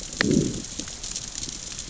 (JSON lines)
{"label": "biophony, growl", "recorder": "SoundTrap 600 or HydroMoth"}